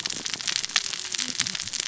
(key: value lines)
label: biophony, cascading saw
recorder: SoundTrap 600 or HydroMoth